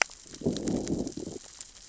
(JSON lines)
{"label": "biophony, growl", "recorder": "SoundTrap 600 or HydroMoth"}